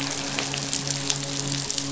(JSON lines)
{"label": "biophony, midshipman", "recorder": "SoundTrap 500"}